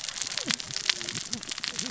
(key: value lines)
label: biophony, cascading saw
recorder: SoundTrap 600 or HydroMoth